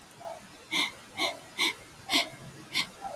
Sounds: Sniff